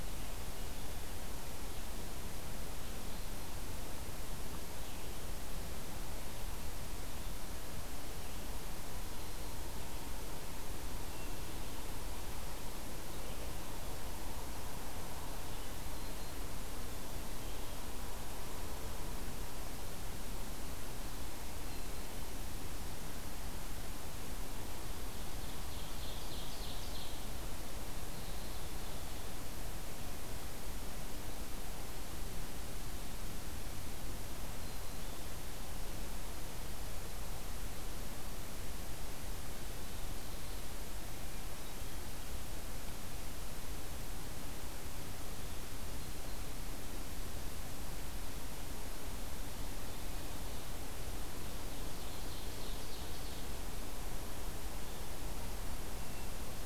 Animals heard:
Ovenbird (Seiurus aurocapilla), Black-capped Chickadee (Poecile atricapillus)

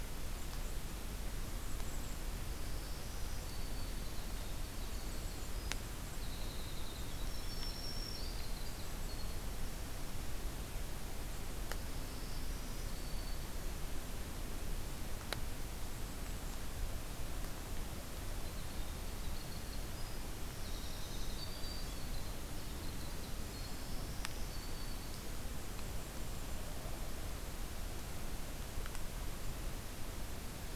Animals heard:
Winter Wren (Troglodytes hiemalis), Golden-crowned Kinglet (Regulus satrapa), Black-throated Green Warbler (Setophaga virens)

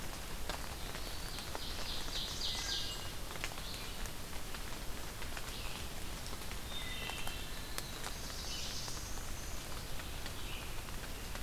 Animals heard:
Red-eyed Vireo (Vireo olivaceus), Black-throated Blue Warbler (Setophaga caerulescens), Wood Thrush (Hylocichla mustelina), Ovenbird (Seiurus aurocapilla)

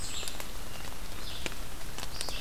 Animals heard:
Red-eyed Vireo (Vireo olivaceus)

